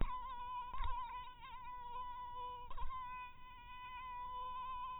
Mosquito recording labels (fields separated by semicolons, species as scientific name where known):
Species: mosquito; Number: one; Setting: cup